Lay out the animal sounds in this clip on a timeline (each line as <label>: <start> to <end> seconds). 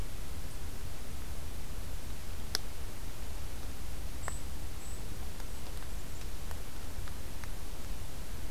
Golden-crowned Kinglet (Regulus satrapa): 4.1 to 5.1 seconds